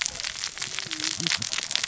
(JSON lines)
{"label": "biophony, cascading saw", "recorder": "SoundTrap 600 or HydroMoth"}